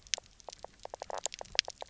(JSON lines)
{"label": "biophony, knock croak", "recorder": "SoundTrap 300"}